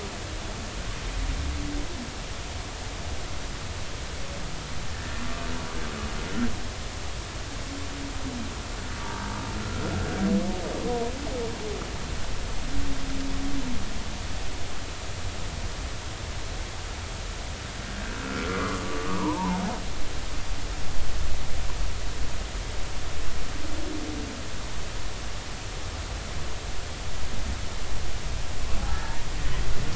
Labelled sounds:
4.9	5.1	humpback whale, 1.7 to 1.8 kHz
18.2	19.6	humpback whale, 0.80 to 1.4 kHz

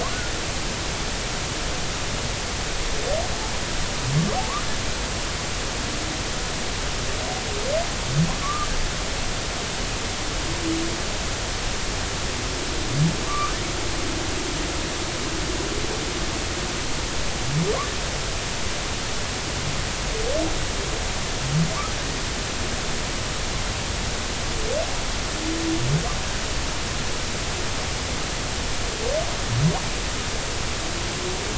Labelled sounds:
8.4	8.7	humpback whale, 1.1 to 1.3 kHz
13.3	13.5	humpback whale, 1.0 to 1.3 kHz

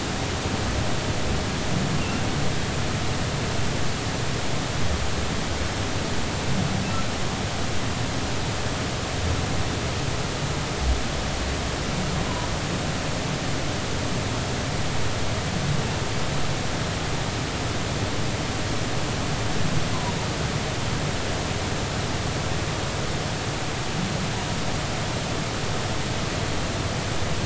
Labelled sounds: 2.0	2.2	humpback whale, 2.6 to 2.9 kHz

